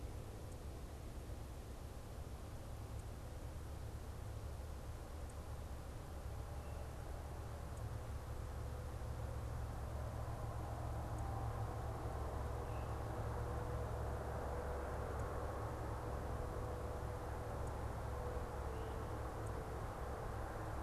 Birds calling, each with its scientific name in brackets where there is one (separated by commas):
unidentified bird